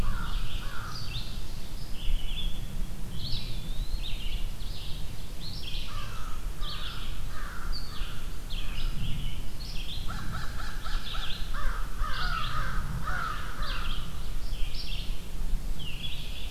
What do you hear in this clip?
American Crow, Red-eyed Vireo, Black-throated Blue Warbler, Eastern Wood-Pewee